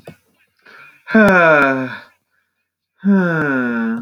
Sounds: Sigh